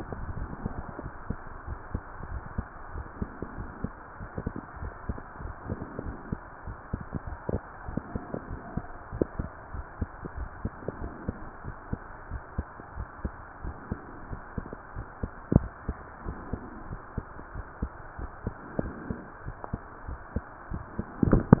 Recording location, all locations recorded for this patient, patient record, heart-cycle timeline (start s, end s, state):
pulmonary valve (PV)
aortic valve (AV)+pulmonary valve (PV)+tricuspid valve (TV)
#Age: nan
#Sex: Female
#Height: nan
#Weight: nan
#Pregnancy status: True
#Murmur: Absent
#Murmur locations: nan
#Most audible location: nan
#Systolic murmur timing: nan
#Systolic murmur shape: nan
#Systolic murmur grading: nan
#Systolic murmur pitch: nan
#Systolic murmur quality: nan
#Diastolic murmur timing: nan
#Diastolic murmur shape: nan
#Diastolic murmur grading: nan
#Diastolic murmur pitch: nan
#Diastolic murmur quality: nan
#Outcome: Normal
#Campaign: 2015 screening campaign
0.00	9.71	unannotated
9.71	9.73	diastole
9.73	9.81	S1
9.81	10.00	systole
10.00	10.05	S2
10.05	10.36	diastole
10.36	10.47	S1
10.47	10.64	systole
10.64	10.69	S2
10.69	11.00	diastole
11.00	11.09	S1
11.09	11.27	systole
11.27	11.32	S2
11.32	11.64	diastole
11.64	11.74	S1
11.74	11.91	systole
11.91	11.96	S2
11.96	12.30	diastole
12.30	12.39	S1
12.39	12.57	systole
12.57	12.63	S2
12.63	12.96	diastole
12.96	13.06	S1
13.06	13.23	systole
13.23	13.29	S2
13.29	13.63	diastole
13.63	13.73	S1
13.73	13.90	systole
13.90	13.95	S2
13.95	14.30	diastole
14.30	14.37	S1
14.37	14.56	systole
14.56	14.61	S2
14.61	14.96	diastole
14.96	15.04	S1
15.04	15.22	systole
15.22	15.28	S2
15.28	15.58	diastole
15.58	15.69	S1
15.69	15.87	systole
15.87	15.94	S2
15.94	16.25	diastole
16.25	16.34	S1
16.34	16.52	systole
16.52	16.57	S2
16.57	16.89	diastole
16.89	16.99	S1
16.99	17.16	systole
17.16	17.22	S2
17.22	17.54	diastole
17.54	17.63	S1
17.63	17.80	systole
17.80	17.88	S2
17.88	18.18	diastole
18.18	18.27	S1
18.27	18.45	systole
18.45	18.50	S2
18.50	18.80	diastole
18.80	18.92	S1
18.92	19.08	systole
19.08	19.14	S2
19.14	19.45	diastole
19.45	19.54	S1
19.54	19.72	systole
19.72	19.77	S2
19.77	20.08	diastole
20.08	20.17	S1
20.17	20.35	systole
20.35	20.41	S2
20.41	20.71	diastole
20.71	21.60	unannotated